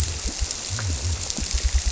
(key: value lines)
label: biophony
recorder: SoundTrap 300